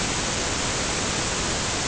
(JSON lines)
{"label": "ambient", "recorder": "HydroMoth"}